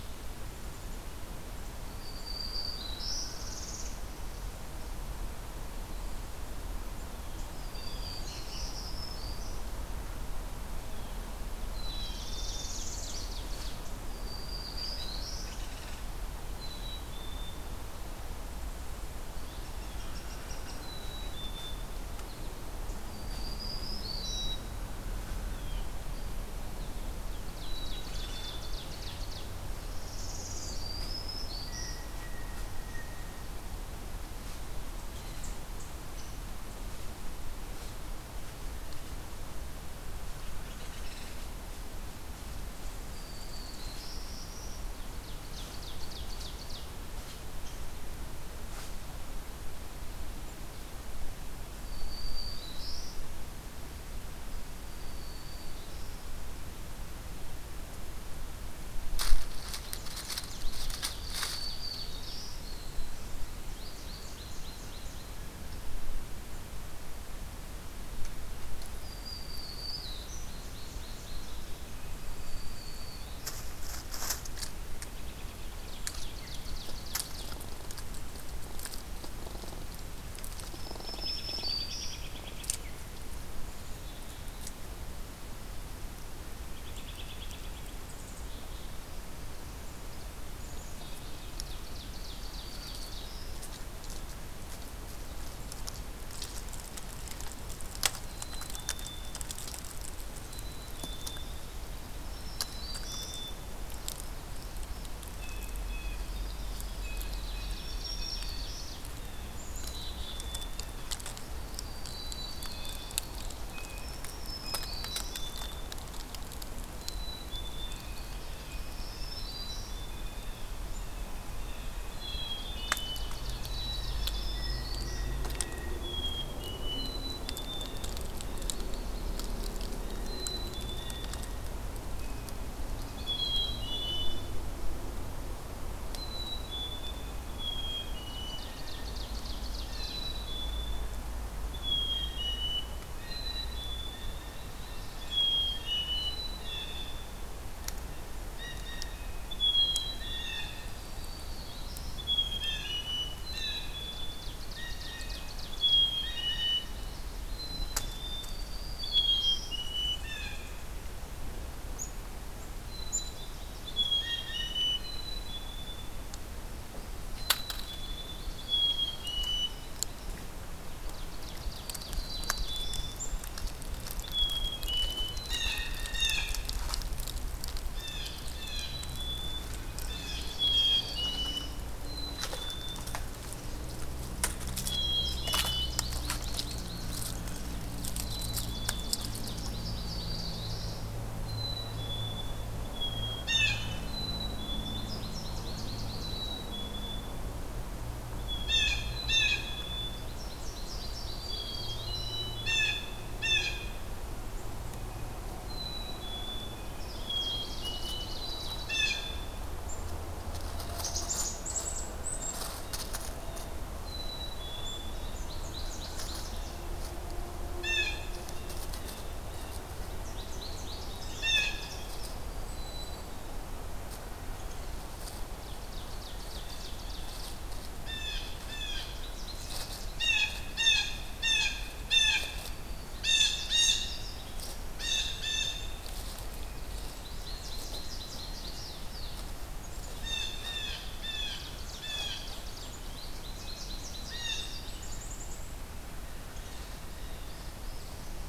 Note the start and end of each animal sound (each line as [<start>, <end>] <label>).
[1.88, 3.28] Black-throated Green Warbler (Setophaga virens)
[3.00, 3.97] Northern Parula (Setophaga americana)
[7.62, 8.27] Blue Jay (Cyanocitta cristata)
[7.70, 9.64] Black-throated Green Warbler (Setophaga virens)
[11.72, 12.82] Black-capped Chickadee (Poecile atricapillus)
[11.94, 13.23] Northern Parula (Setophaga americana)
[12.08, 13.84] Ovenbird (Seiurus aurocapilla)
[14.09, 15.52] Black-throated Green Warbler (Setophaga virens)
[14.76, 16.11] Downy Woodpecker (Dryobates pubescens)
[16.48, 17.74] Black-capped Chickadee (Poecile atricapillus)
[19.43, 20.84] Downy Woodpecker (Dryobates pubescens)
[20.76, 21.92] Black-capped Chickadee (Poecile atricapillus)
[22.12, 22.50] American Goldfinch (Spinus tristis)
[23.10, 24.57] Black-throated Green Warbler (Setophaga virens)
[24.17, 24.65] Black-capped Chickadee (Poecile atricapillus)
[25.33, 25.94] Blue Jay (Cyanocitta cristata)
[26.51, 27.76] American Goldfinch (Spinus tristis)
[27.55, 28.81] Black-capped Chickadee (Poecile atricapillus)
[27.72, 29.59] Ovenbird (Seiurus aurocapilla)
[29.92, 30.88] Northern Parula (Setophaga americana)
[30.54, 32.02] Black-throated Green Warbler (Setophaga virens)
[31.62, 33.51] Blue Jay (Cyanocitta cristata)
[35.09, 35.46] Blue Jay (Cyanocitta cristata)
[36.13, 36.33] Downy Woodpecker (Dryobates pubescens)
[40.45, 41.53] Downy Woodpecker (Dryobates pubescens)
[43.14, 44.84] Black-throated Green Warbler (Setophaga virens)
[44.98, 47.01] Ovenbird (Seiurus aurocapilla)
[47.58, 47.82] Downy Woodpecker (Dryobates pubescens)
[51.79, 53.16] Black-throated Green Warbler (Setophaga virens)
[54.76, 56.21] Black-throated Green Warbler (Setophaga virens)
[59.70, 62.39] American Goldfinch (Spinus tristis)
[61.09, 63.15] Black-throated Green Warbler (Setophaga virens)
[63.68, 65.43] American Goldfinch (Spinus tristis)
[68.99, 70.48] Black-throated Green Warbler (Setophaga virens)
[70.20, 71.83] American Goldfinch (Spinus tristis)
[72.37, 73.61] Black-throated Green Warbler (Setophaga virens)
[75.03, 75.93] American Robin (Turdus migratorius)
[75.87, 77.57] Ovenbird (Seiurus aurocapilla)
[80.65, 82.27] Black-throated Green Warbler (Setophaga virens)
[81.03, 82.77] American Robin (Turdus migratorius)
[83.59, 84.65] Black-capped Chickadee (Poecile atricapillus)
[86.73, 88.01] American Robin (Turdus migratorius)
[88.34, 88.94] Black-capped Chickadee (Poecile atricapillus)
[90.52, 91.54] Black-capped Chickadee (Poecile atricapillus)
[91.36, 93.21] Ovenbird (Seiurus aurocapilla)
[92.51, 93.58] Black-throated Green Warbler (Setophaga virens)
[98.22, 99.44] Black-capped Chickadee (Poecile atricapillus)
[100.44, 101.68] Black-capped Chickadee (Poecile atricapillus)
[102.25, 103.37] Black-throated Green Warbler (Setophaga virens)
[102.42, 103.81] Black-capped Chickadee (Poecile atricapillus)
[105.35, 106.19] Blue Jay (Cyanocitta cristata)
[105.91, 107.64] American Goldfinch (Spinus tristis)
[107.02, 109.61] Blue Jay (Cyanocitta cristata)
[107.08, 109.07] Ovenbird (Seiurus aurocapilla)
[107.61, 108.97] Black-throated Green Warbler (Setophaga virens)
[109.55, 110.84] Black-capped Chickadee (Poecile atricapillus)
[111.58, 113.17] Black-throated Green Warbler (Setophaga virens)
[112.01, 113.23] Black-capped Chickadee (Poecile atricapillus)
[112.65, 115.10] Blue Jay (Cyanocitta cristata)
[113.92, 115.50] Black-throated Green Warbler (Setophaga virens)
[114.78, 115.97] Black-capped Chickadee (Poecile atricapillus)
[116.93, 118.10] Black-capped Chickadee (Poecile atricapillus)
[117.89, 125.99] Blue Jay (Cyanocitta cristata)
[117.99, 119.04] American Goldfinch (Spinus tristis)
[118.74, 120.02] Black-throated Green Warbler (Setophaga virens)
[119.27, 120.44] Black-capped Chickadee (Poecile atricapillus)
[122.12, 123.22] Black-capped Chickadee (Poecile atricapillus)
[122.41, 124.56] Ovenbird (Seiurus aurocapilla)
[123.64, 124.82] Black-capped Chickadee (Poecile atricapillus)
[123.99, 125.35] Black-throated Green Warbler (Setophaga virens)
[125.97, 128.05] Black-capped Chickadee (Poecile atricapillus)
[128.17, 129.75] American Goldfinch (Spinus tristis)
[129.99, 131.81] Blue Jay (Cyanocitta cristata)
[130.12, 131.38] Black-capped Chickadee (Poecile atricapillus)
[132.16, 133.34] Blue Jay (Cyanocitta cristata)
[132.86, 134.57] Black-capped Chickadee (Poecile atricapillus)
[136.10, 138.71] Black-capped Chickadee (Poecile atricapillus)
[137.11, 138.81] Blue Jay (Cyanocitta cristata)
[138.21, 140.26] Ovenbird (Seiurus aurocapilla)
[139.75, 140.50] Blue Jay (Cyanocitta cristata)
[139.86, 141.19] Black-capped Chickadee (Poecile atricapillus)
[141.65, 144.31] Black-capped Chickadee (Poecile atricapillus)
[142.03, 145.41] Blue Jay (Cyanocitta cristata)
[144.15, 145.80] American Goldfinch (Spinus tristis)
[145.28, 147.21] Black-capped Chickadee (Poecile atricapillus)
[146.54, 147.21] Blue Jay (Cyanocitta cristata)
[148.51, 150.85] Blue Jay (Cyanocitta cristata)
[149.68, 150.74] Black-capped Chickadee (Poecile atricapillus)
[150.92, 152.28] Black-throated Green Warbler (Setophaga virens)
[152.12, 154.45] Black-capped Chickadee (Poecile atricapillus)
[152.56, 153.04] Blue Jay (Cyanocitta cristata)
[153.50, 154.06] Blue Jay (Cyanocitta cristata)
[153.99, 156.06] Ovenbird (Seiurus aurocapilla)
[154.65, 155.40] Blue Jay (Cyanocitta cristata)
[155.69, 157.06] Black-capped Chickadee (Poecile atricapillus)
[156.00, 158.15] American Goldfinch (Spinus tristis)
[156.21, 156.89] Blue Jay (Cyanocitta cristata)
[157.51, 158.56] Black-capped Chickadee (Poecile atricapillus)
[158.37, 159.82] Black-throated Green Warbler (Setophaga virens)
[159.02, 160.20] Black-capped Chickadee (Poecile atricapillus)
[160.09, 160.82] Blue Jay (Cyanocitta cristata)
[162.83, 166.10] Black-capped Chickadee (Poecile atricapillus)
[163.03, 164.32] American Goldfinch (Spinus tristis)
[164.16, 164.80] Blue Jay (Cyanocitta cristata)
[167.42, 169.79] Black-capped Chickadee (Poecile atricapillus)
[167.69, 170.42] American Goldfinch (Spinus tristis)
[170.92, 172.82] Ovenbird (Seiurus aurocapilla)
[171.78, 173.13] Black-throated Green Warbler (Setophaga virens)
[172.13, 173.22] Black-capped Chickadee (Poecile atricapillus)
[174.24, 175.44] Black-capped Chickadee (Poecile atricapillus)
[175.42, 176.54] Blue Jay (Cyanocitta cristata)
[177.90, 179.00] Blue Jay (Cyanocitta cristata)
[178.62, 179.78] Black-capped Chickadee (Poecile atricapillus)
[179.92, 181.74] American Goldfinch (Spinus tristis)
[180.00, 181.15] Blue Jay (Cyanocitta cristata)
[180.56, 181.73] Black-capped Chickadee (Poecile atricapillus)
[182.02, 183.16] Black-capped Chickadee (Poecile atricapillus)
[184.82, 186.06] Black-capped Chickadee (Poecile atricapillus)
[185.12, 187.44] American Goldfinch (Spinus tristis)
[187.90, 189.76] Ovenbird (Seiurus aurocapilla)
[188.17, 189.27] Black-capped Chickadee (Poecile atricapillus)
[189.40, 190.89] American Goldfinch (Spinus tristis)
[189.67, 191.06] Black-throated Green Warbler (Setophaga virens)
[191.42, 193.49] Black-capped Chickadee (Poecile atricapillus)
[193.33, 193.96] Blue Jay (Cyanocitta cristata)
[194.07, 195.19] Black-capped Chickadee (Poecile atricapillus)
[194.71, 196.56] American Goldfinch (Spinus tristis)
[196.10, 197.41] Black-capped Chickadee (Poecile atricapillus)
[198.30, 200.29] Black-capped Chickadee (Poecile atricapillus)
[198.60, 199.64] Blue Jay (Cyanocitta cristata)
[200.02, 202.11] American Goldfinch (Spinus tristis)
[200.94, 202.47] Black-throated Green Warbler (Setophaga virens)
[201.46, 202.58] Black-capped Chickadee (Poecile atricapillus)
[202.59, 203.88] Blue Jay (Cyanocitta cristata)
[204.89, 207.20] Blue Jay (Cyanocitta cristata)
[205.65, 206.89] Black-capped Chickadee (Poecile atricapillus)
[206.87, 208.07] American Goldfinch (Spinus tristis)
[207.23, 209.66] Black-capped Chickadee (Poecile atricapillus)
[207.27, 209.19] Ovenbird (Seiurus aurocapilla)
[208.81, 209.42] Blue Jay (Cyanocitta cristata)
[210.63, 213.78] Blue Jay (Cyanocitta cristata)
[210.89, 212.60] Black-capped Chickadee (Poecile atricapillus)
[213.91, 215.19] Black-capped Chickadee (Poecile atricapillus)
[215.14, 216.66] American Goldfinch (Spinus tristis)
[217.74, 219.79] Blue Jay (Cyanocitta cristata)
[220.10, 222.40] American Goldfinch (Spinus tristis)
[221.29, 222.00] Blue Jay (Cyanocitta cristata)
[222.61, 223.22] Black-capped Chickadee (Poecile atricapillus)
[225.56, 227.63] Ovenbird (Seiurus aurocapilla)
[227.97, 229.10] Blue Jay (Cyanocitta cristata)
[228.95, 230.30] American Goldfinch (Spinus tristis)
[230.14, 232.58] Blue Jay (Cyanocitta cristata)
[232.50, 233.40] Black-throated Green Warbler (Setophaga virens)
[233.15, 234.15] Blue Jay (Cyanocitta cristata)
[234.89, 235.89] Blue Jay (Cyanocitta cristata)
[236.99, 239.39] American Goldfinch (Spinus tristis)
[240.11, 242.53] Blue Jay (Cyanocitta cristata)
[241.26, 242.94] Ovenbird (Seiurus aurocapilla)
[243.01, 244.92] American Goldfinch (Spinus tristis)
[244.22, 244.88] Blue Jay (Cyanocitta cristata)
[244.51, 245.88] Black-capped Chickadee (Poecile atricapillus)
[246.49, 247.51] Blue Jay (Cyanocitta cristata)
[247.27, 248.49] Northern Parula (Setophaga americana)